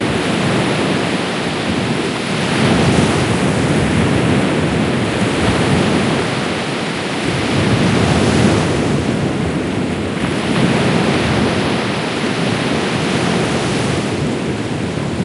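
Waves crash at the beach with volume that periodically decreases and increases. 0:00.0 - 0:15.2

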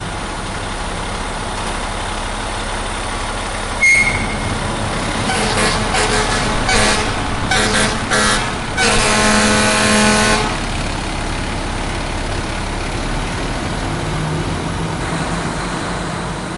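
An engine of a truck is running steadily outdoors. 0:00.0 - 0:16.6
A truck's brakes squeak metallically. 0:03.8 - 0:04.4
A truck honks repeatedly in a rhythmic pattern. 0:05.3 - 0:10.5

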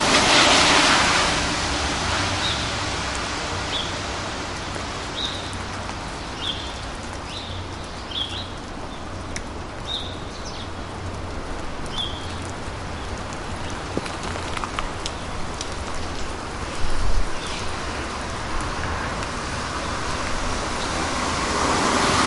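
A car passes by quickly, producing a hissing sound. 0:00.0 - 0:02.3
Occasional raindrops fall outdoors. 0:00.0 - 0:22.3
Street traffic hums faintly in the background. 0:00.0 - 0:22.3
Birds chirp high-pitched peacefully in the distance. 0:02.2 - 0:20.3
A car is approaching steadily on the street. 0:19.3 - 0:22.3

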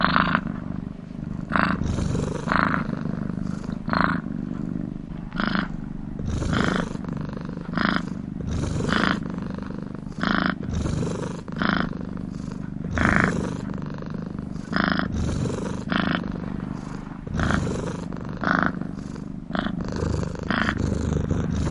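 A cat snores continuously. 0:00.2 - 0:21.7

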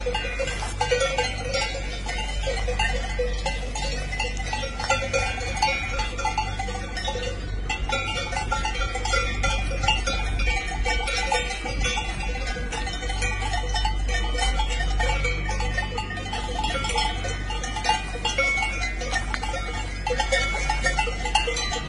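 Many cowbells ringing chaotically at the same time. 0:00.0 - 0:21.9

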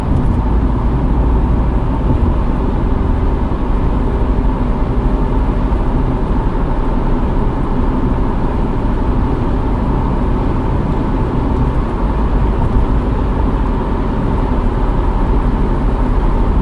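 A car is moving along the road. 0:00.0 - 0:16.6

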